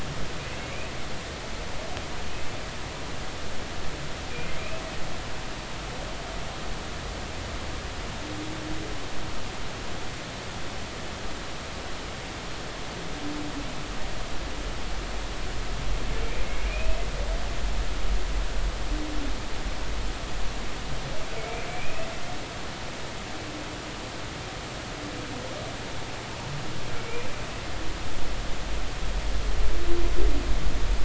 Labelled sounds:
0.6	0.9	humpback whale, 2.1 to 2.6 kHz
16.7	17.0	humpback whale, 2.3 to 2.6 kHz
21.7	22.1	humpback whale, 2.2 to 2.7 kHz
27.0	27.3	humpback whale, 2.2 to 2.5 kHz

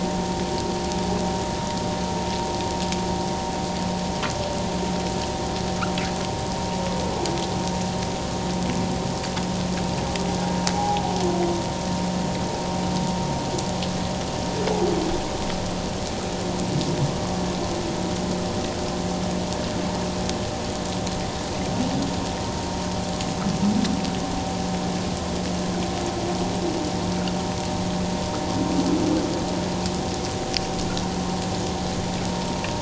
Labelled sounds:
10.7	11.0	humpback whale, 0.78 to 0.88 kHz

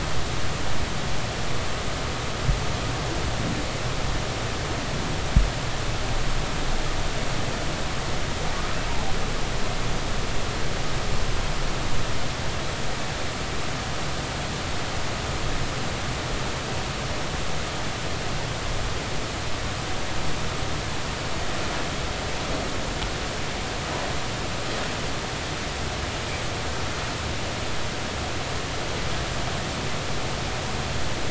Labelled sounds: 8.9	9.1	humpback whale, 0.80 to 0.99 kHz

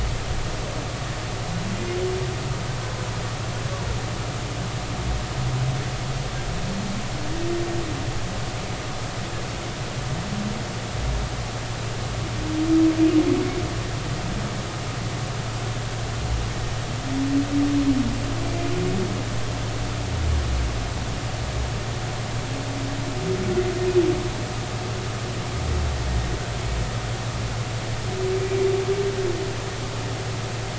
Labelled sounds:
18.4	18.7	humpback whale, 2.3 to 2.5 kHz

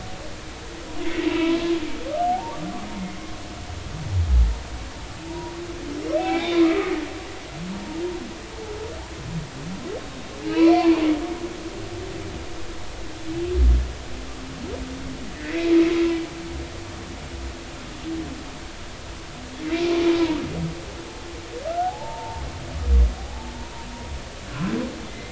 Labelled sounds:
1.0	1.6	humpback whale, 2.0 to 4.0 kHz
2.3	2.6	humpback whale, 0.80 to 0.99 kHz
3.0	3.3	humpback whale, 1.8 to 2.2 kHz
5.2	5.5	humpback whale, 0.80 to 1.0 kHz
6.2	6.9	humpback whale, 0.80 to 3.8 kHz
7.7	8.0	humpback whale, 0.86 to 0.96 kHz
10.0	11.0	humpback whale, 0.80 to 4.6 kHz
15.3	15.7	humpback whale, 1.7 to 2.2 kHz
20.2	20.4	humpback whale, 0.90 to 1.0 kHz
21.7	22.4	humpback whale, 0.80 to 1.5 kHz
23.5	23.9	humpback whale, 0.90 to 1.0 kHz
25.1	25.3	humpback whale, 2.0 to 2.1 kHz

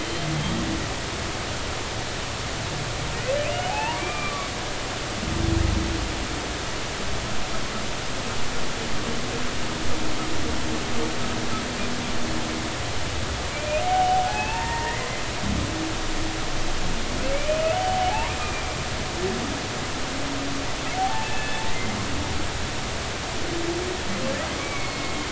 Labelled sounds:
0.0	0.3	humpback whale, 3.1 to 3.2 kHz
3.7	5.0	humpback whale, 0.80 to 2.9 kHz
13.5	15.1	humpback whale, 0.80 to 2.8 kHz
17.3	18.8	humpback whale, 0.80 to 3.0 kHz
21.0	21.6	humpback whale, 0.80 to 2.7 kHz
24.6	25.2	humpback whale, 2.1 to 4.4 kHz

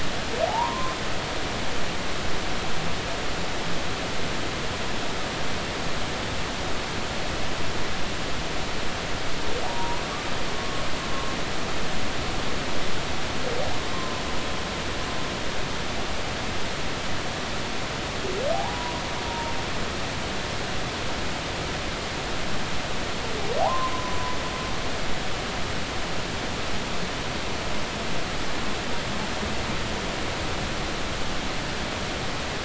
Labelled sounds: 0.5	1.0	humpback whale, 0.80 to 1.1 kHz
9.6	10.0	humpback whale, 0.80 to 1.1 kHz
13.9	14.2	humpback whale, 0.90 to 1.1 kHz
18.7	19.5	humpback whale, 0.90 to 1.1 kHz
23.6	23.9	humpback whale, 0.80 to 1.1 kHz

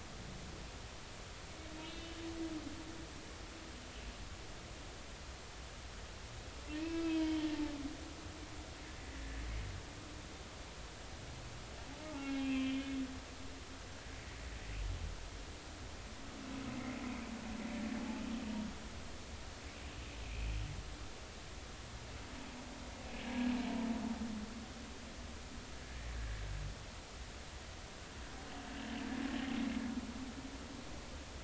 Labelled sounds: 1.7	2.1	humpback whale, 2.5 to 4.1 kHz
6.7	7.5	humpback whale, 0.90 to 3.3 kHz
12.1	12.9	humpback whale, 0.80 to 3.3 kHz
16.7	17.0	humpback whale, 2.0 to 2.2 kHz
18.0	18.2	humpback whale, 0.83 to 0.90 kHz
26.2	26.4	humpback whale, 1.6 to 1.9 kHz

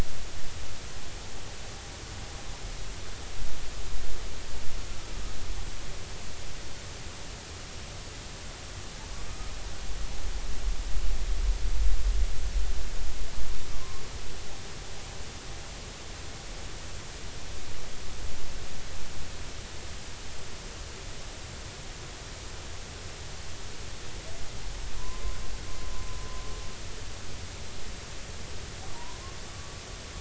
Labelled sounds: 13.7	14.0	humpback whale, 0.99 to 1.2 kHz
25.0	25.2	humpback whale, 0.93 to 1.1 kHz
28.9	29.2	humpback whale, 0.86 to 1.1 kHz

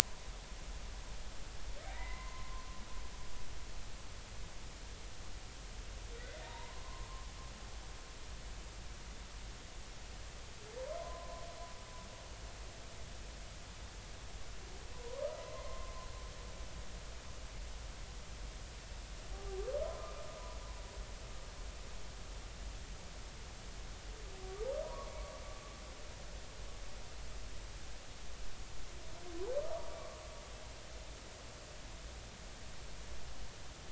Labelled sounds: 1.9	2.7	humpback whale, 0.90 to 2.1 kHz
6.4	7.1	humpback whale, 0.86 to 1.1 kHz
11.0	11.4	humpback whale, 0.96 to 1.1 kHz
14.9	15.9	humpback whale, 0.90 to 2.2 kHz
19.3	20.1	humpback whale, 0.80 to 1.1 kHz
24.8	25.1	humpback whale, 0.90 to 1.2 kHz
29.6	29.8	humpback whale, 1.1 to 1.3 kHz

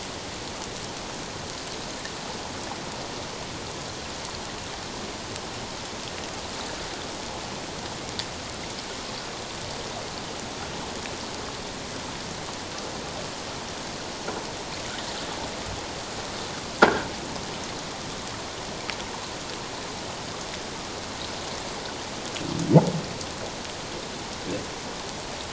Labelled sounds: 16.8	17.1	croaking sound likely from a nearby submerged object, 1.3 to 1.7 kHz

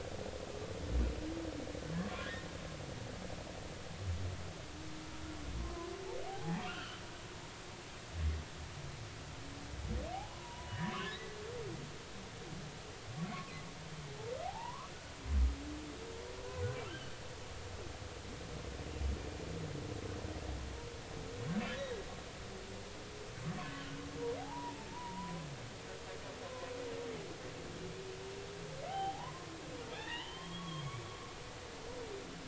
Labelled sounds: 1.9	2.4	humpback whale, 0.96 to 3.5 kHz
5.6	5.9	humpback whale, 0.96 to 1.1 kHz
6.3	7.0	humpback whale, 0.80 to 3.2 kHz
10.3	10.7	humpback whale, 0.90 to 1.1 kHz
14.4	14.9	humpback whale, 0.80 to 1.3 kHz
16.9	17.1	humpback whale, 2.9 to 3.2 kHz
24.4	25.4	humpback whale, 0.80 to 1.1 kHz
26.4	26.7	humpback whale, 0.96 to 1.1 kHz
28.9	29.5	humpback whale, 0.80 to 3.3 kHz
29.9	31.1	humpback whale, 0.80 to 3.4 kHz

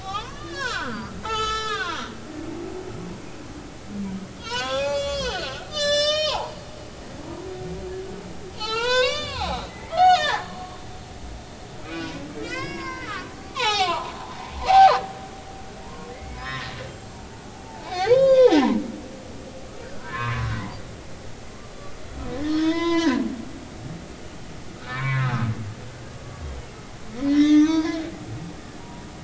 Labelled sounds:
0.0	2.1	humpback whale, 0.80 to 7.5 kHz
4.4	6.6	humpback whale, 0.80 to 8.0 kHz
7.2	7.5	humpback whale, 0.90 to 1.1 kHz
8.5	10.6	humpback whale, 0.80 to 7.1 kHz
11.8	14.1	humpback whale, 0.80 to 5.6 kHz
15.8	16.7	humpback whale, 0.90 to 5.4 kHz
17.7	18.8	humpback whale, 0.80 to 4.6 kHz
19.8	20.6	humpback whale, 0.93 to 1.8 kHz
22.4	23.3	humpback whale, 0.86 to 6.1 kHz
24.8	25.5	humpback whale, 0.99 to 2.4 kHz
27.3	28.0	humpback whale, 0.86 to 6.5 kHz
28.8	29.0	humpback whale, 0.90 to 0.99 kHz

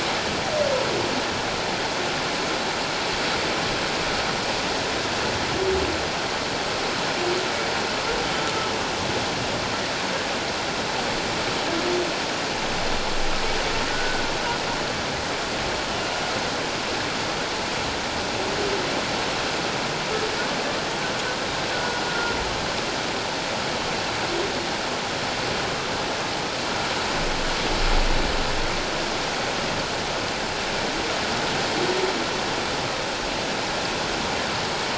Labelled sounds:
13.9	14.3	humpback whale, 1.4 to 1.6 kHz
21.7	22.3	humpback whale, 1.3 to 1.5 kHz

